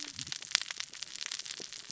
{"label": "biophony, cascading saw", "recorder": "SoundTrap 600 or HydroMoth"}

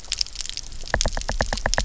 {"label": "biophony, knock", "recorder": "SoundTrap 300"}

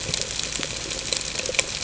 {"label": "ambient", "recorder": "HydroMoth"}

